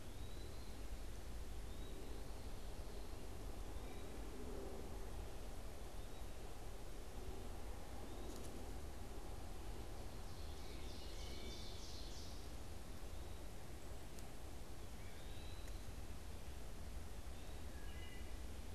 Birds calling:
Ovenbird (Seiurus aurocapilla), Eastern Wood-Pewee (Contopus virens), Wood Thrush (Hylocichla mustelina)

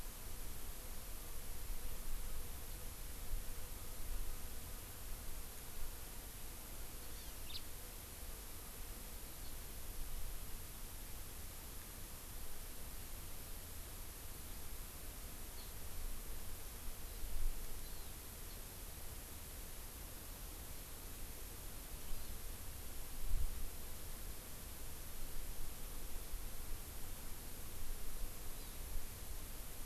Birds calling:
House Finch (Haemorhous mexicanus), Hawaii Amakihi (Chlorodrepanis virens)

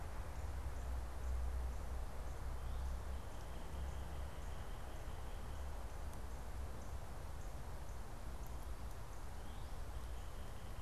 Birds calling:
Northern Cardinal (Cardinalis cardinalis)

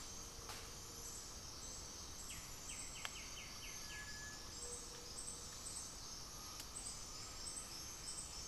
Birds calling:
Gray-fronted Dove (Leptotila rufaxilla), Cinereous Tinamou (Crypturellus cinereus), White-winged Becard (Pachyramphus polychopterus)

